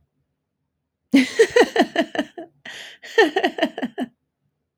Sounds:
Laughter